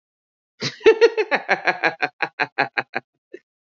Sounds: Laughter